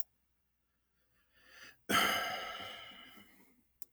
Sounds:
Sigh